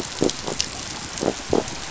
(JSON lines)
{"label": "biophony", "recorder": "SoundTrap 500"}